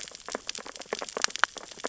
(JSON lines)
{"label": "biophony, sea urchins (Echinidae)", "recorder": "SoundTrap 600 or HydroMoth"}